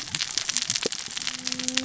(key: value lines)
label: biophony, cascading saw
recorder: SoundTrap 600 or HydroMoth